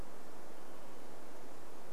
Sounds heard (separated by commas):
Olive-sided Flycatcher call